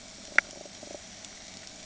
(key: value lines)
label: ambient
recorder: HydroMoth